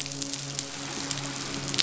{"label": "biophony, midshipman", "recorder": "SoundTrap 500"}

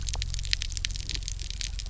{"label": "anthrophony, boat engine", "recorder": "SoundTrap 300"}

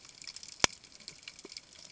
{"label": "ambient", "recorder": "HydroMoth"}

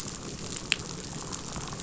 {"label": "biophony, damselfish", "recorder": "SoundTrap 500"}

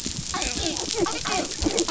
{"label": "biophony, dolphin", "recorder": "SoundTrap 500"}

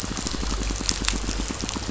{"label": "biophony, pulse", "recorder": "SoundTrap 500"}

